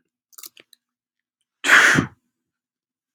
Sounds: Sneeze